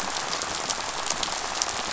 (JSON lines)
{"label": "biophony, rattle", "recorder": "SoundTrap 500"}